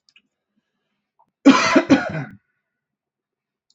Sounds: Cough